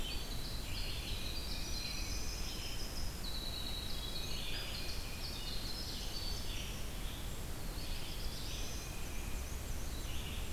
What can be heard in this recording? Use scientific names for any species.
Troglodytes hiemalis, Vireo olivaceus, Baeolophus bicolor, Setophaga caerulescens, Mniotilta varia